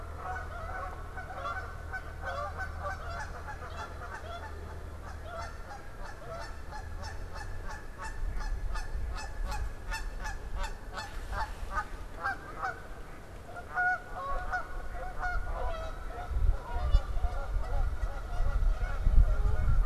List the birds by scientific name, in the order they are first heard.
Anas platyrhynchos, Branta canadensis